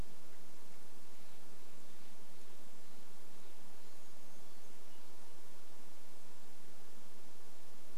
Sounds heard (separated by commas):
Steller's Jay call, Brown Creeper call